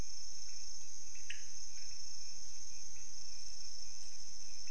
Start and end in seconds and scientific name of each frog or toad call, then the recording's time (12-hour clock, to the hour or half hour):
1.3	1.5	Leptodactylus podicipinus
~1am